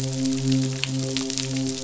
{"label": "biophony, midshipman", "recorder": "SoundTrap 500"}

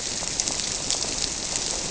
{"label": "biophony", "recorder": "SoundTrap 300"}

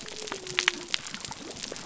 {"label": "biophony", "recorder": "SoundTrap 300"}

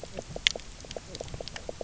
{"label": "biophony, knock croak", "recorder": "SoundTrap 300"}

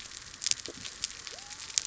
{"label": "biophony", "recorder": "SoundTrap 300"}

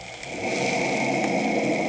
{"label": "anthrophony, boat engine", "recorder": "HydroMoth"}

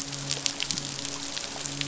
{"label": "biophony, midshipman", "recorder": "SoundTrap 500"}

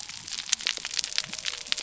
{"label": "biophony", "recorder": "SoundTrap 300"}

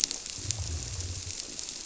{"label": "biophony", "recorder": "SoundTrap 300"}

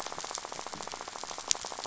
{"label": "biophony, rattle", "recorder": "SoundTrap 500"}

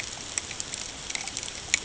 {"label": "ambient", "recorder": "HydroMoth"}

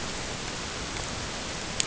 {"label": "ambient", "recorder": "HydroMoth"}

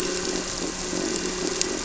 {"label": "anthrophony, boat engine", "recorder": "SoundTrap 300"}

